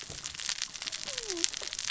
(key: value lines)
label: biophony, cascading saw
recorder: SoundTrap 600 or HydroMoth